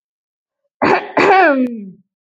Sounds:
Throat clearing